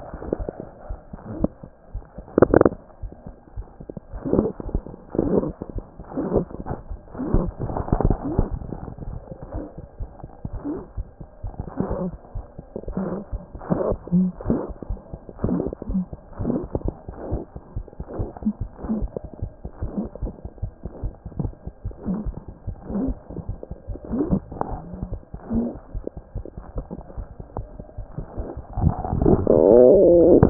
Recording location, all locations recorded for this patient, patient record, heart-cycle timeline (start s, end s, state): mitral valve (MV)
aortic valve (AV)+pulmonary valve (PV)+mitral valve (MV)
#Age: Infant
#Sex: Female
#Height: 57.0 cm
#Weight: 4.8 kg
#Pregnancy status: False
#Murmur: Absent
#Murmur locations: nan
#Most audible location: nan
#Systolic murmur timing: nan
#Systolic murmur shape: nan
#Systolic murmur grading: nan
#Systolic murmur pitch: nan
#Systolic murmur quality: nan
#Diastolic murmur timing: nan
#Diastolic murmur shape: nan
#Diastolic murmur grading: nan
#Diastolic murmur pitch: nan
#Diastolic murmur quality: nan
#Outcome: Abnormal
#Campaign: 2014 screening campaign
0.00	17.32	unannotated
17.32	17.43	S1
17.43	17.55	systole
17.55	17.65	S2
17.65	17.77	diastole
17.77	17.86	S1
17.86	17.99	systole
17.99	18.08	S2
18.08	18.20	diastole
18.20	18.31	S1
18.31	18.43	systole
18.43	18.50	S2
18.50	18.62	diastole
18.62	18.72	S1
18.72	18.84	systole
18.84	18.93	S2
18.93	19.02	diastole
19.02	19.13	S1
19.13	19.24	systole
19.24	19.35	S2
19.35	19.43	diastole
19.43	30.50	unannotated